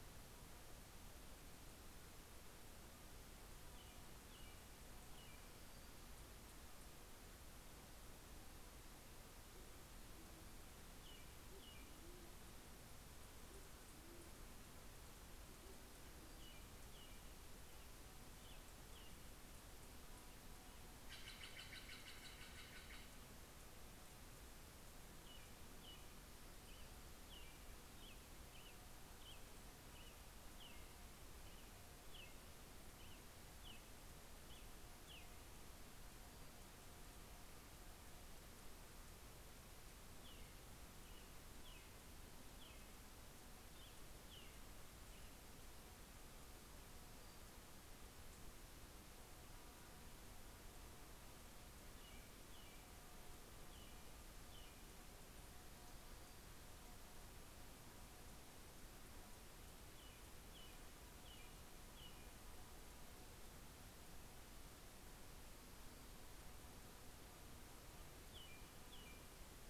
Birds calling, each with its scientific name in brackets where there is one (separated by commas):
Steller's Jay (Cyanocitta stelleri), American Robin (Turdus migratorius), Band-tailed Pigeon (Patagioenas fasciata)